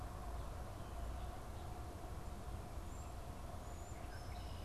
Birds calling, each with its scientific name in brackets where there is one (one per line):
European Starling (Sturnus vulgaris)